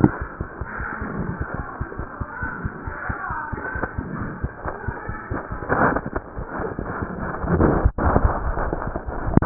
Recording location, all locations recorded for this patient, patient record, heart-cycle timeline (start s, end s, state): mitral valve (MV)
aortic valve (AV)+mitral valve (MV)
#Age: Child
#Sex: Female
#Height: 81.0 cm
#Weight: 13.3 kg
#Pregnancy status: False
#Murmur: Unknown
#Murmur locations: nan
#Most audible location: nan
#Systolic murmur timing: nan
#Systolic murmur shape: nan
#Systolic murmur grading: nan
#Systolic murmur pitch: nan
#Systolic murmur quality: nan
#Diastolic murmur timing: nan
#Diastolic murmur shape: nan
#Diastolic murmur grading: nan
#Diastolic murmur pitch: nan
#Diastolic murmur quality: nan
#Outcome: Abnormal
#Campaign: 2015 screening campaign
0.00	1.39	unannotated
1.39	1.45	S1
1.45	1.58	systole
1.58	1.63	S2
1.63	1.79	diastole
1.79	1.86	S1
1.86	1.98	systole
1.98	2.04	S2
2.04	2.19	diastole
2.19	2.25	S1
2.25	2.40	systole
2.40	2.47	S2
2.47	2.64	diastole
2.64	2.69	S1
2.69	2.85	systole
2.85	2.91	S2
2.91	3.08	diastole
3.08	3.13	S1
3.13	3.29	systole
3.29	3.34	S2
3.34	3.51	diastole
3.51	3.56	S1
3.56	3.73	systole
3.73	3.81	S2
3.81	3.96	diastole
3.96	4.01	S1
4.01	4.19	systole
4.19	4.24	S2
4.24	4.41	diastole
4.41	4.48	S1
4.48	4.64	systole
4.64	4.70	S2
4.70	4.86	diastole
4.86	4.93	S1
4.93	5.07	systole
5.07	5.14	S2
5.14	5.29	diastole
5.29	5.35	S1
5.35	5.50	systole
5.50	5.56	S2
5.56	9.46	unannotated